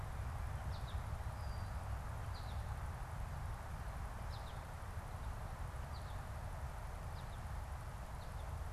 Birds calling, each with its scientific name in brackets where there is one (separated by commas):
unidentified bird, American Goldfinch (Spinus tristis)